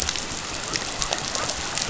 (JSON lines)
{"label": "biophony", "recorder": "SoundTrap 500"}